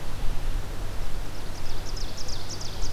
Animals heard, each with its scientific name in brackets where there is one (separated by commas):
Ovenbird (Seiurus aurocapilla), Red-eyed Vireo (Vireo olivaceus)